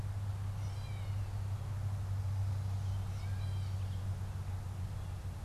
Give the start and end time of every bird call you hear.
0.0s-5.4s: Gray Catbird (Dumetella carolinensis)

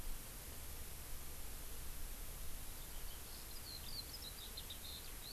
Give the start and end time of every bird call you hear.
2.6s-5.3s: Eurasian Skylark (Alauda arvensis)

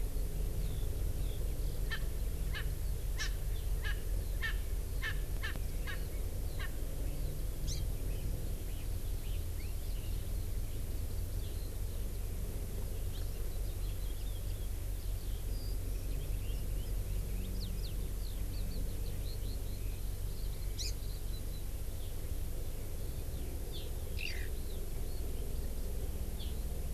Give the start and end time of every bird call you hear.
0.0s-6.1s: Eurasian Skylark (Alauda arvensis)
1.9s-2.0s: Erckel's Francolin (Pternistis erckelii)
2.5s-2.6s: Erckel's Francolin (Pternistis erckelii)
3.1s-3.3s: Erckel's Francolin (Pternistis erckelii)
3.8s-3.9s: Erckel's Francolin (Pternistis erckelii)
4.4s-4.5s: Erckel's Francolin (Pternistis erckelii)
5.0s-5.1s: Erckel's Francolin (Pternistis erckelii)
5.4s-5.5s: Erckel's Francolin (Pternistis erckelii)
6.6s-6.7s: Erckel's Francolin (Pternistis erckelii)
7.6s-7.8s: Hawaii Amakihi (Chlorodrepanis virens)
9.0s-21.6s: Eurasian Skylark (Alauda arvensis)
20.7s-20.9s: Hawaii Amakihi (Chlorodrepanis virens)
23.3s-23.5s: Eurasian Skylark (Alauda arvensis)
23.7s-23.9s: Hawaii Amakihi (Chlorodrepanis virens)
24.1s-24.5s: Eurasian Skylark (Alauda arvensis)
26.4s-26.5s: Hawaii Amakihi (Chlorodrepanis virens)

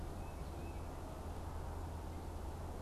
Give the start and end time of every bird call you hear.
0.0s-1.1s: Tufted Titmouse (Baeolophus bicolor)

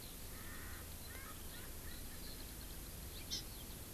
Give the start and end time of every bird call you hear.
0.0s-3.9s: Eurasian Skylark (Alauda arvensis)
0.3s-2.8s: Erckel's Francolin (Pternistis erckelii)
3.3s-3.4s: Hawaii Amakihi (Chlorodrepanis virens)

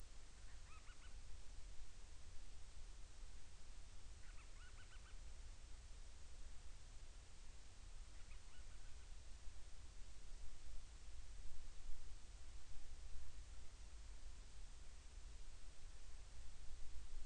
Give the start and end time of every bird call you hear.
0.3s-1.3s: Band-rumped Storm-Petrel (Hydrobates castro)
4.1s-5.3s: Band-rumped Storm-Petrel (Hydrobates castro)
7.9s-9.2s: Band-rumped Storm-Petrel (Hydrobates castro)

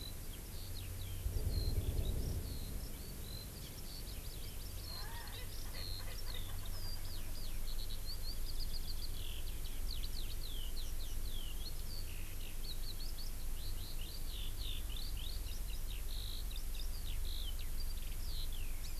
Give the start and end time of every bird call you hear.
0.0s-19.0s: Eurasian Skylark (Alauda arvensis)
4.1s-5.5s: Hawaii Amakihi (Chlorodrepanis virens)
5.0s-7.1s: Erckel's Francolin (Pternistis erckelii)
18.8s-19.0s: Hawaii Amakihi (Chlorodrepanis virens)

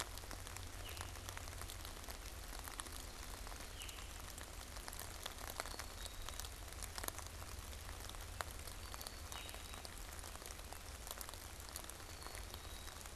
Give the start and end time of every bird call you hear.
0.7s-4.6s: Veery (Catharus fuscescens)
5.4s-13.1s: Black-capped Chickadee (Poecile atricapillus)
9.2s-9.9s: Veery (Catharus fuscescens)

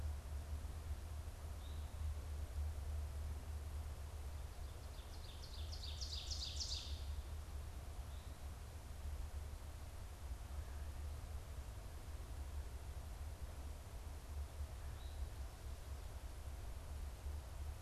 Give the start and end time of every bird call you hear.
0.0s-2.2s: Eastern Towhee (Pipilo erythrophthalmus)
4.2s-7.3s: Ovenbird (Seiurus aurocapilla)

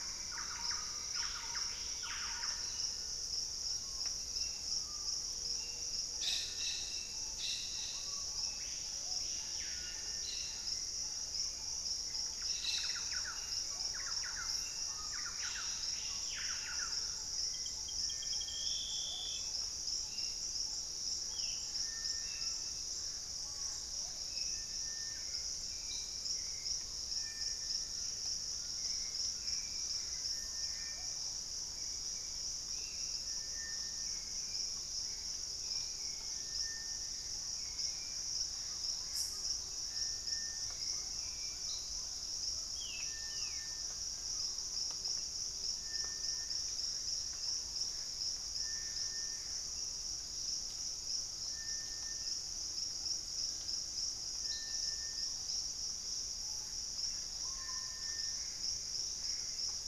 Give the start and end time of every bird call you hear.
0.0s-2.9s: Thrush-like Wren (Campylorhynchus turdinus)
0.4s-17.5s: Screaming Piha (Lipaugus vociferans)
2.4s-3.9s: Collared Trogon (Trogon collaris)
4.1s-42.1s: Hauxwell's Thrush (Turdus hauxwelli)
5.9s-14.9s: Plumbeous Pigeon (Patagioenas plumbea)
12.2s-17.4s: Thrush-like Wren (Campylorhynchus turdinus)
21.2s-21.9s: Ringed Antpipit (Corythopis torquatus)
21.5s-24.3s: Gray Antbird (Cercomacra cinerascens)
25.0s-29.1s: Screaming Piha (Lipaugus vociferans)
25.3s-28.3s: Purple-throated Fruitcrow (Querula purpurata)
27.8s-30.3s: Collared Trogon (Trogon collaris)
28.5s-30.2s: Gray Antbird (Cercomacra cinerascens)
37.0s-39.8s: Gray Antbird (Cercomacra cinerascens)
37.3s-56.4s: Purple-throated Fruitcrow (Querula purpurata)
40.9s-43.2s: Black-tailed Trogon (Trogon melanurus)
42.6s-43.9s: Ringed Antpipit (Corythopis torquatus)
47.0s-49.9s: Gray Antbird (Cercomacra cinerascens)
56.3s-58.6s: Screaming Piha (Lipaugus vociferans)
56.9s-59.9s: Gray Antbird (Cercomacra cinerascens)

